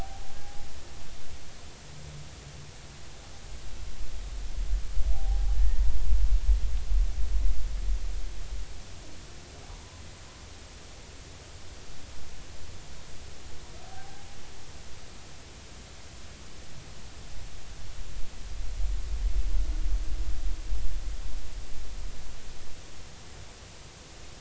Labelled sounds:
0.0	0.7	humpback whale, 0.80 to 0.90 kHz
5.1	6.0	humpback whale, 0.80 to 1.9 kHz
9.7	10.0	humpback whale, 0.86 to 1.1 kHz
13.8	14.1	humpback whale, 0.80 to 0.86 kHz

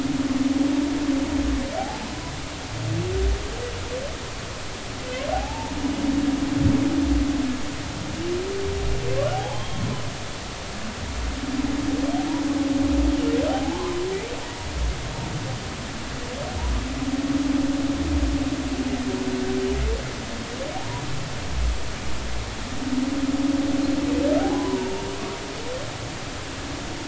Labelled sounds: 1.8	2.1	humpback whale, 0.80 to 0.93 kHz
5.3	5.7	humpback whale, 0.80 to 0.99 kHz
9.3	9.8	humpback whale, 0.80 to 3.3 kHz
13.5	14.0	humpback whale, 0.80 to 1.1 kHz
20.8	21.0	humpback whale, 0.80 to 1.0 kHz
24.4	25.0	humpback whale, 0.80 to 1.1 kHz

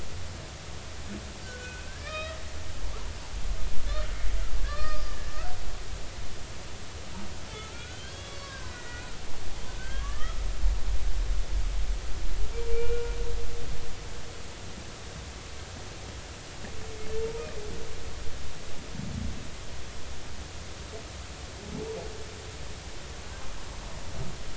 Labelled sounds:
1.4	2.4	humpback whale, 1.1 to 5.2 kHz
4.6	5.3	humpback whale, 1.1 to 5.0 kHz
7.5	9.2	humpback whale, 0.99 to 5.6 kHz
9.8	10.4	humpback whale, 1.0 to 3.4 kHz
12.5	13.2	humpback whale, 1.3 to 2.4 kHz
17.2	17.4	humpback whale, 0.86 to 0.99 kHz

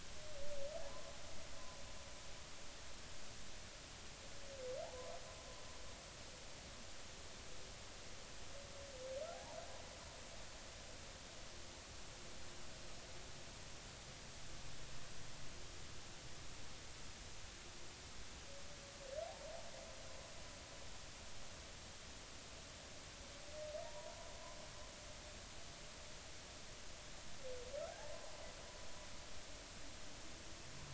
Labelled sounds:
0.8	1.1	humpback whale, 0.80 to 1.2 kHz
9.3	9.6	humpback whale, 0.80 to 0.99 kHz
23.8	24.2	humpback whale, 0.86 to 1.0 kHz

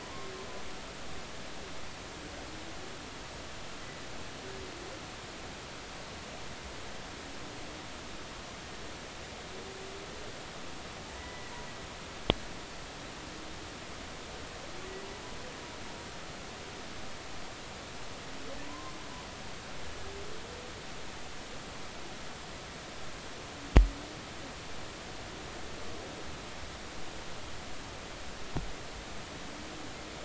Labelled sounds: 0.0	0.3	humpback whale, 0.93 to 1.1 kHz
11.2	11.5	humpback whale, 1.9 to 2.0 kHz
18.7	19.0	humpback whale, 0.93 to 1.1 kHz

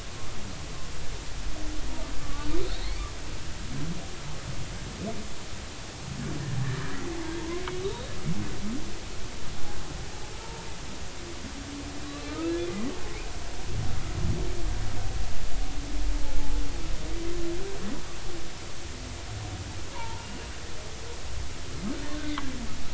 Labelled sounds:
2.2	3.1	humpback whale, 1.1 to 2.4 kHz
7.4	8.1	humpback whale, 0.86 to 3.9 kHz
10.4	10.7	humpback whale, 0.86 to 0.96 kHz
12.0	12.5	humpback whale, 1.0 to 4.1 kHz
19.9	20.3	humpback whale, 0.83 to 1.1 kHz
22.1	22.5	humpback whale, 1.5 to 2.2 kHz

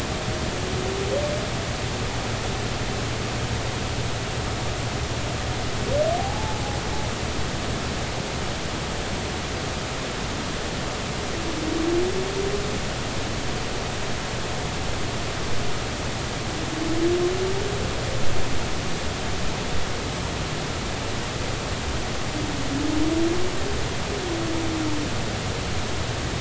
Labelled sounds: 6.2	6.6	humpback whale, 0.80 to 0.93 kHz

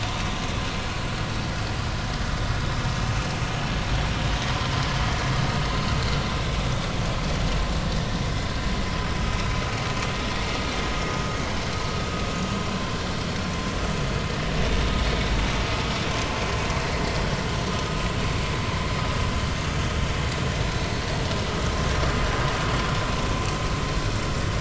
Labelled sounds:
7.9	8.2	vessel noise, 1.7 to 2.0 kHz

